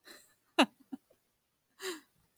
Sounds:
Laughter